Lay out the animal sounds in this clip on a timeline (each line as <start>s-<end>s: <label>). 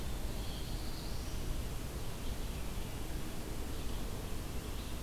0.0s-5.0s: Red-eyed Vireo (Vireo olivaceus)
0.1s-1.5s: Black-throated Blue Warbler (Setophaga caerulescens)